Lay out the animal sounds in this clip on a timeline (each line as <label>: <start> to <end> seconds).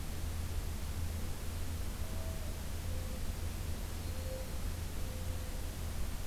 Mourning Dove (Zenaida macroura): 2.0 to 5.5 seconds